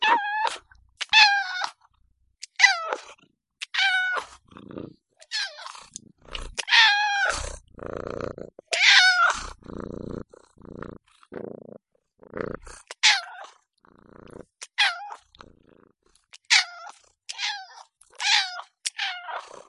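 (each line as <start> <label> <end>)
0.0 A cat is meowing. 4.4
4.5 A cat is purring. 5.1
5.2 A cat is meowing. 5.9
5.9 A cat is purring. 13.6
6.5 A cat is meowing. 7.5
8.6 A cat is meowing. 9.6
12.9 A cat is meowing. 13.4
14.5 A cat is meowing. 15.2
16.2 A cat is purring. 19.7
16.2 A cat is meowing. 19.4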